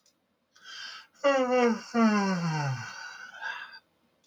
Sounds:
Sigh